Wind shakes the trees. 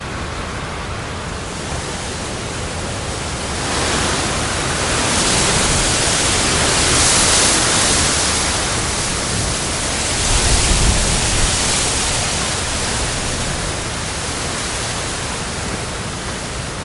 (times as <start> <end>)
10.2 12.9